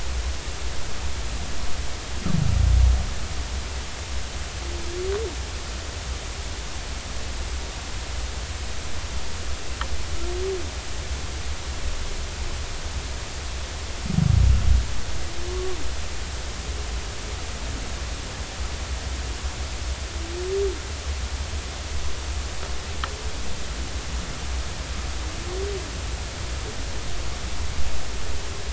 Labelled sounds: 15.5	15.8	humpback whale, 1.1 to 1.2 kHz

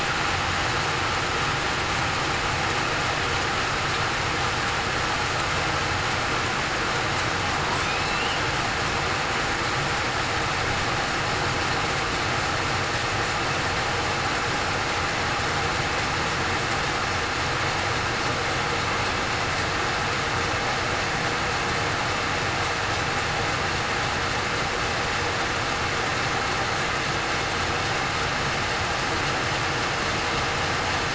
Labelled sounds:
7.8	8.2	killer whale, southern resident, 2.4 to 2.7 kHz

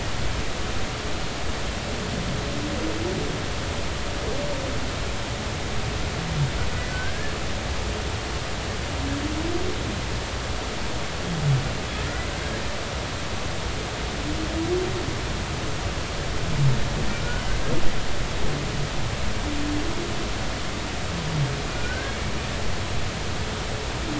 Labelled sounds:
6.9	7.3	humpback whale, 1.5 to 1.8 kHz
21.7	22.2	humpback whale, 1.4 to 1.7 kHz

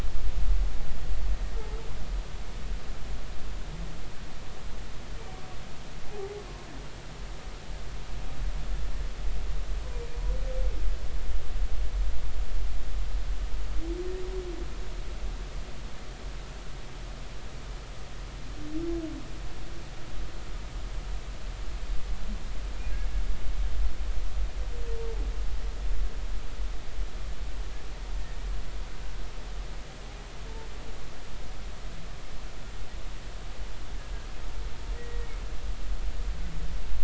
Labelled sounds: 6.1	6.4	humpback whale, 0.80 to 0.86 kHz
35.0	35.3	humpback whale, 1.8 to 2.0 kHz

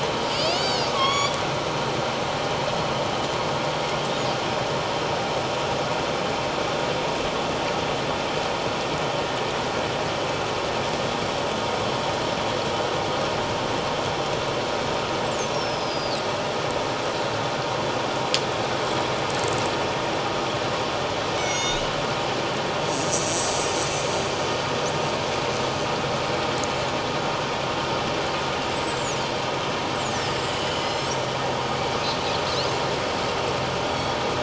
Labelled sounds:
0.2	1.4	killer whale, northern resident, 1.0 to 7.1 kHz
15.2	16.2	killer whale, northern resident, 3.7 to 7.9 kHz
21.4	21.9	killer whale, northern resident, 2.1 to 6.8 kHz
22.9	23.5	killer whale, northern resident, 7.5 to 7.9 kHz
28.7	29.2	killer whale, northern resident, 6.4 to 8.0 kHz
29.9	30.2	killer whale, northern resident, 5.6 to 8.0 kHz
30.7	31.4	killer whale, northern resident, 2.8 to 5.7 kHz
33.8	34.2	killer whale, northern resident, 3.2 to 3.6 kHz

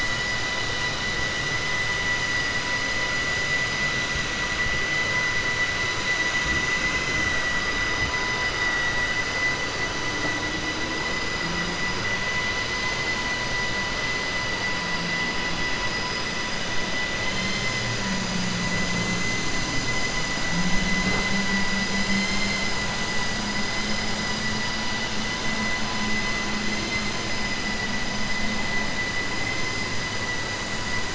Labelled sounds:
17.2	17.8	vessel noise, 1.9 to 6.1 kHz
22.1	22.7	vessel noise, 1.9 to 7.3 kHz

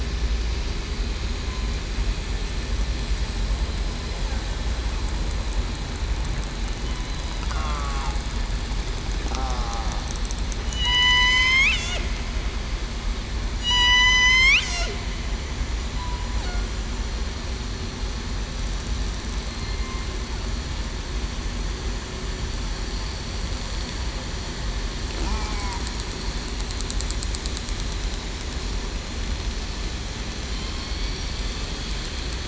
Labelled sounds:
7.5	8.0	killer whale, southern resident, 1.1 to 1.4 kHz
9.4	9.8	killer whale, southern resident, 1.0 to 1.2 kHz
10.6	11.7	killer whale, southern resident, 0.94 to 7.4 kHz
13.5	14.5	killer whale, southern resident, 3.8 to 8.0 kHz
19.6	19.9	killer whale, southern resident, 2.08 to 2.13 kHz
25.3	25.7	killer whale, southern resident, 0.77 to 0.89 kHz

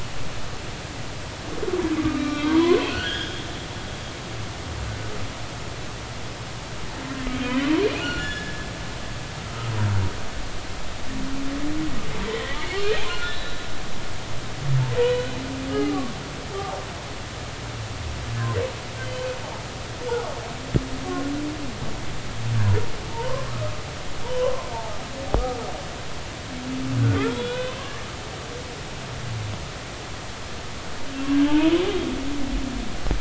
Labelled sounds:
2.2	3.5	humpback whale, 0.90 to 5.0 kHz
8.0	8.7	humpback whale, 1.3 to 5.3 kHz
9.4	9.7	humpback whale, 1.2 to 1.4 kHz
12.3	13.7	humpback whale, 1.3 to 4.0 kHz
15.0	16.2	humpback whale, 0.93 to 3.0 kHz
23.1	23.5	humpback whale, 0.86 to 1.2 kHz
25.2	25.7	humpback whale, 0.90 to 1.2 kHz
27.3	27.8	humpback whale, 1.4 to 3.6 kHz
31.5	31.8	humpback whale, 0.83 to 1.1 kHz

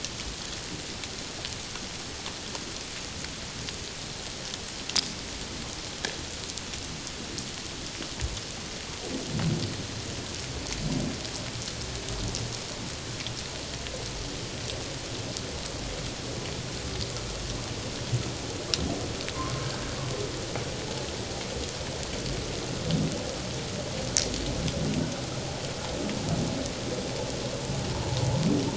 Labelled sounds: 19.3	19.7	humpback whale, 0.94 to 1.2 kHz

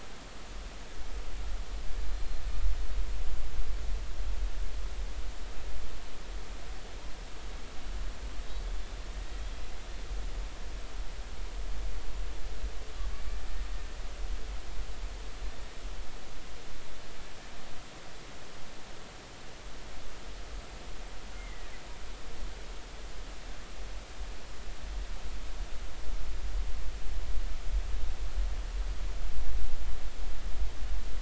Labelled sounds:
2.1	2.4	killer whale, 4.0 to 4.2 kHz
21.4	21.7	killer whale, 1.7 to 2.2 kHz

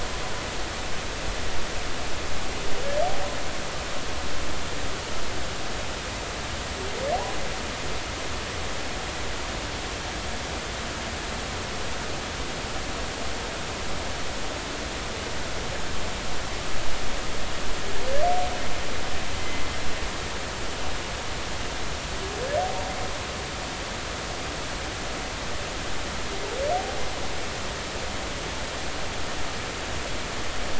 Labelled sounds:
19.4	19.7	humpback whale, 2.0 to 2.1 kHz

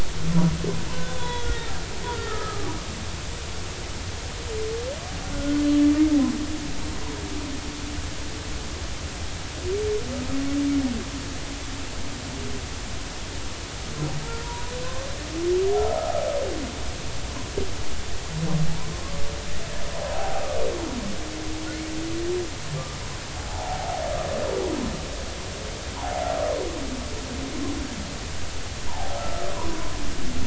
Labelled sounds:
1.1	1.7	humpback whale, 1.4 to 3.9 kHz
2.1	2.7	humpback whale, 0.90 to 1.9 kHz
5.3	5.6	humpback whale, 1.4 to 1.5 kHz
14.4	15.1	humpback whale, 0.90 to 1.1 kHz
20.1	20.4	humpback whale, 0.80 to 0.86 kHz
23.4	23.9	humpback whale, 0.80 to 0.99 kHz
26.0	26.2	humpback whale, 0.80 to 1.1 kHz
28.9	29.2	humpback whale, 0.80 to 1.0 kHz
30.1	30.4	humpback whale, 1.2 to 1.4 kHz

